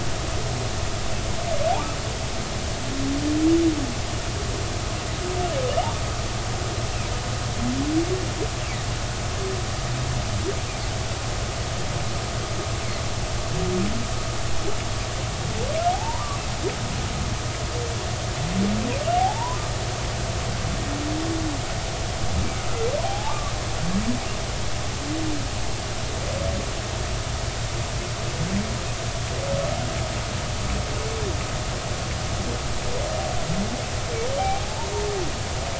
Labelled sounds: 15.9	16.3	humpback whale, 0.80 to 1.1 kHz
19.1	19.6	humpback whale, 0.80 to 1.1 kHz
23.0	23.5	humpback whale, 0.80 to 1.2 kHz
34.4	34.9	humpback whale, 0.80 to 0.99 kHz

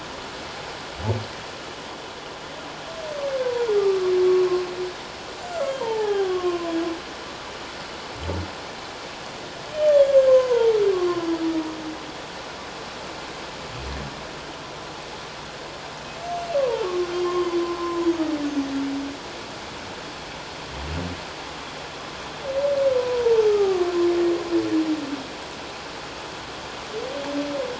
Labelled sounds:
3.8	4.1	humpback whale, 1.1 to 1.3 kHz
5.5	6.7	humpback whale, 0.78 to 7.4 kHz
9.9	11.3	humpback whale, 0.88 to 3.5 kHz
16.2	18.1	humpback whale, 0.84 to 6.3 kHz
18.5	18.7	humpback whale, 6.2 to 6.5 kHz
23.0	23.9	humpback whale, 0.78 to 1.3 kHz

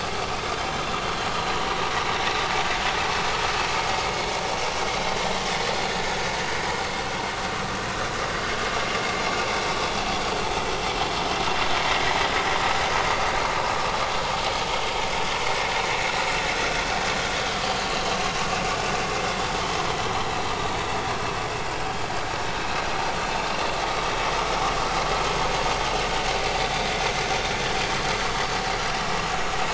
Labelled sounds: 10.4	10.7	vessel noise, 6.3 to 6.4 kHz

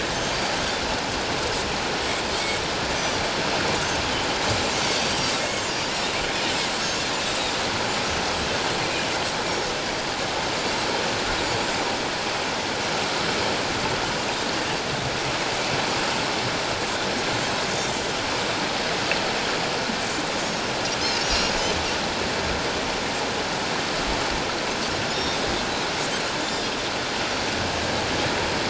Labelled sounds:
2.9	3.2	Pacific white-sided dolphin, 5.8 to 6.2 kHz
17.8	18.1	Pacific white-sided dolphin, 7.0 to 7.4 kHz
20.5	20.7	Pacific white-sided dolphin, 5.4 to 5.5 kHz
21.2	21.5	Pacific white-sided dolphin, 2.7 to 5.9 kHz
25.1	25.4	Pacific white-sided dolphin, 3.6 to 5.6 kHz
26.4	26.6	Pacific white-sided dolphin, 3.4 to 3.7 kHz

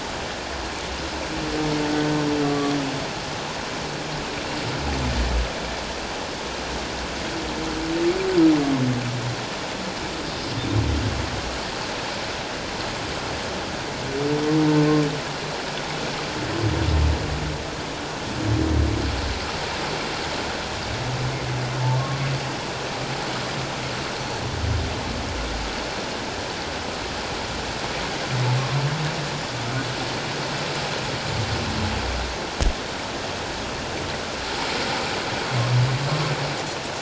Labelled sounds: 2.4	2.7	humpback whale, 1.1 to 1.2 kHz

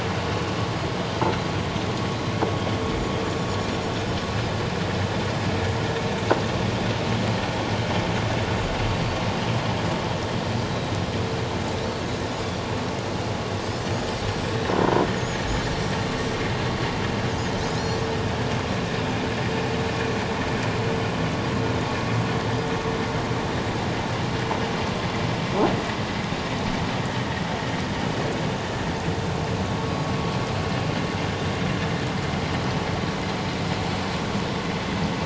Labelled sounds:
15.1	15.4	Pacific white-sided dolphin, 6.2 to 6.9 kHz
17.6	18.0	Pacific white-sided dolphin, 4.9 to 6.8 kHz

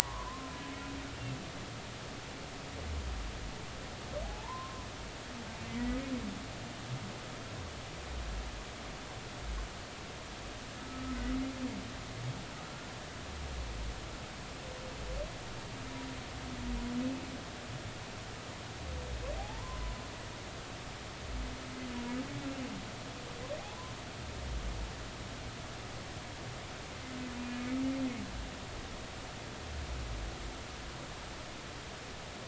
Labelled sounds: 1.0	1.5	humpback whale, 0.80 to 1.2 kHz
4.2	4.9	humpback whale, 0.80 to 1.1 kHz
10.8	11.2	humpback whale, 1.2 to 1.3 kHz
19.4	19.8	humpback whale, 0.80 to 1.1 kHz
27.4	27.7	humpback whale, 2.4 to 2.5 kHz

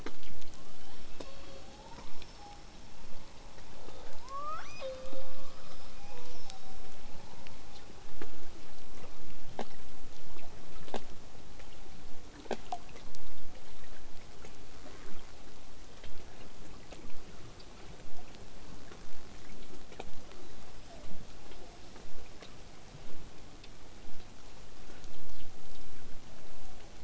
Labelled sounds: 0.5	2.7	killer whale, southern resident, L pod, call S02iii, 0.35 to 8.0 kHz
4.2	5.5	killer whale, southern resident, L pod, call S02iii, 0.35 to 8.0 kHz
6.0	6.9	killer whale, southern resident, 0.31 to 6.3 kHz
20.4	21.1	killer whale, southern resident, 0.35 to 5.6 kHz
22.0	27.0	vessel noise, 0 to 8.0 kHz

